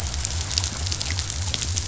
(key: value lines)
label: biophony
recorder: SoundTrap 500